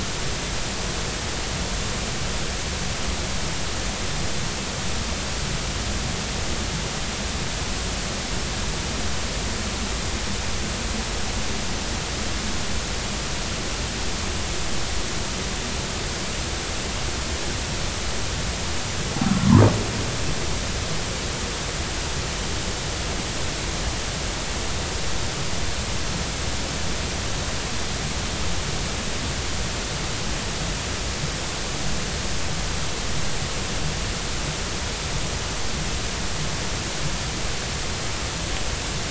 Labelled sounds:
19.4	19.7	humpback whale, 0.83 to 1.3 kHz

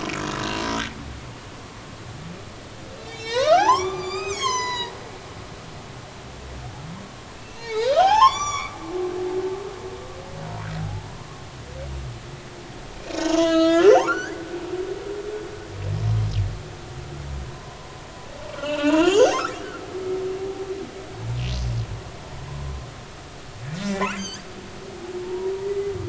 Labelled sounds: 3.0	4.9	humpback whale, 0.80 to 7.9 kHz
7.4	9.7	humpback whale, 0.80 to 8.0 kHz
10.8	11.1	humpback whale, 0.80 to 0.93 kHz
12.9	14.4	humpback whale, 0.80 to 7.1 kHz
17.4	17.8	humpback whale, 0.96 to 1.1 kHz
18.5	19.9	humpback whale, 0.83 to 6.7 kHz
23.8	24.4	humpback whale, 1.5 to 7.9 kHz
25.2	25.5	humpback whale, 0.86 to 0.99 kHz

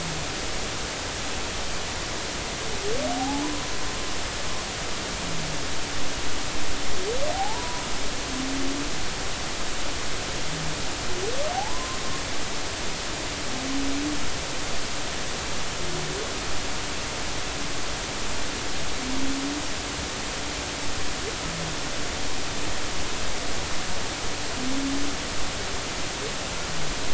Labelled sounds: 3.2	3.4	humpback whale, 0.80 to 0.90 kHz
7.3	7.8	humpback whale, 0.80 to 1.0 kHz
11.5	12.0	humpback whale, 0.80 to 1.1 kHz

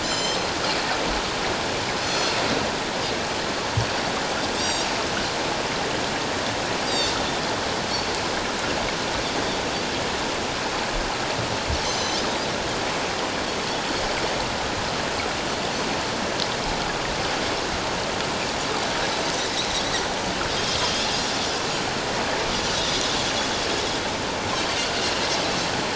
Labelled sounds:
0.0	0.5	Pacific white-sided dolphin, 3.0 to 7.4 kHz
2.0	2.4	Pacific white-sided dolphin, 4.2 to 6.1 kHz
4.6	4.9	Pacific white-sided dolphin, 3.6 to 7.7 kHz
6.8	7.1	Pacific white-sided dolphin, 4.4 to 7.7 kHz
11.8	12.2	Pacific white-sided dolphin, 3.0 to 7.2 kHz
22.7	23.0	Pacific white-sided dolphin, 3.4 to 4.0 kHz

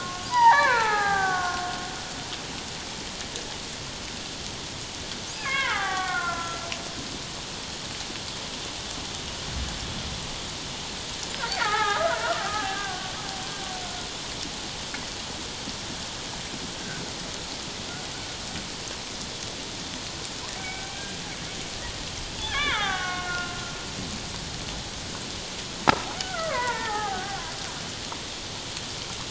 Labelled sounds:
5.4	6.7	killer whale, Bigg's (transient), call T07, 0.78 to 3.6 kHz
11.6	13.1	killer whale, Bigg's (transient), 0.78 to 2.2 kHz
20.6	20.9	killer whale, Bigg's (transient), call T01, 1.5 to 2.3 kHz
22.4	23.6	killer whale, Bigg's (transient), call T07, 0.78 to 3.7 kHz
26.2	27.4	killer whale, Bigg's (transient), 0.78 to 2.3 kHz

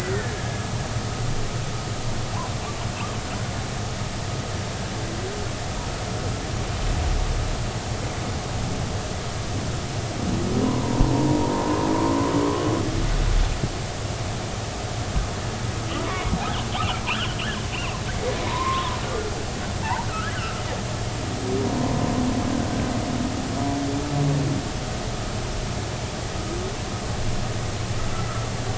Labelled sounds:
10.6	11.8	humpback whale, 0.86 to 1.1 kHz
16.0	16.3	humpback whale, 2.1 to 2.3 kHz
17.1	17.4	humpback whale, 2.3 to 3.5 kHz
18.5	19.0	humpback whale, 0.90 to 1.1 kHz
19.8	20.6	humpback whale, 0.80 to 1.8 kHz

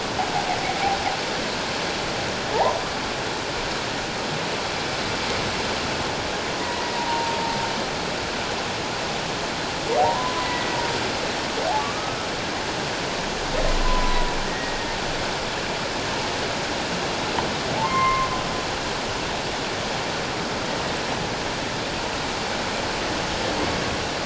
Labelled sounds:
2.5	2.8	humpback whale, 0.78 to 1.2 kHz
6.6	7.6	humpback whale, 0.81 to 2.1 kHz
10.0	10.8	humpback whale, 0.78 to 2.0 kHz
11.8	12.2	humpback whale, 1.1 to 1.3 kHz
13.8	14.8	humpback whale, 0.94 to 1.9 kHz
17.8	18.3	humpback whale, 0.81 to 2.2 kHz

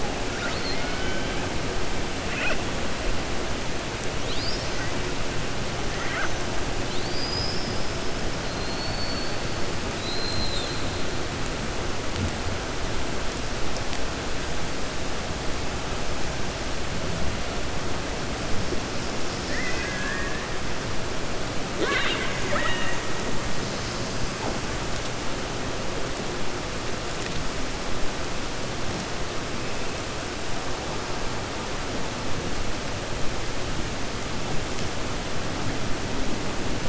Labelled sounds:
9.9	10.8	killer whale, 3.5 to 4.2 kHz
19.4	20.4	killer whale, 1.1 to 2.7 kHz
21.7	23.0	killer whale, 0.37 to 4.2 kHz

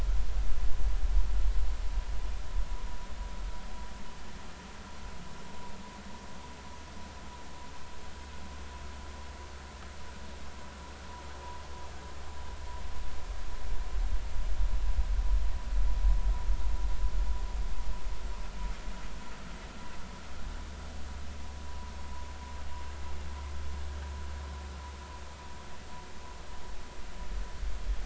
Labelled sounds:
21.7	21.9	vessel noise, 0.93 to 1.0 kHz

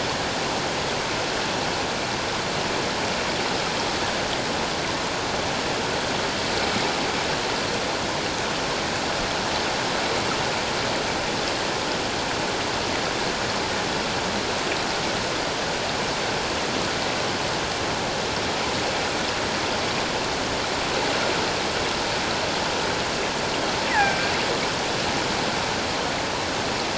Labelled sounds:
23.9	24.3	killer whale, offshore, call OFF17, 1.5 to 2.5 kHz

